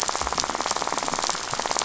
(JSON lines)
{"label": "biophony, rattle", "recorder": "SoundTrap 500"}